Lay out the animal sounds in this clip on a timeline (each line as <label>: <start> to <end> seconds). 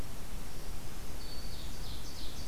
Black-throated Green Warbler (Setophaga virens): 0.6 to 1.9 seconds
Ovenbird (Seiurus aurocapilla): 1.0 to 2.5 seconds